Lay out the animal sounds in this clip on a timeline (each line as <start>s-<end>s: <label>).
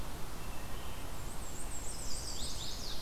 0.0s-3.0s: Red-eyed Vireo (Vireo olivaceus)
0.4s-1.2s: Wood Thrush (Hylocichla mustelina)
1.1s-2.8s: Black-and-white Warbler (Mniotilta varia)
1.7s-3.0s: Chestnut-sided Warbler (Setophaga pensylvanica)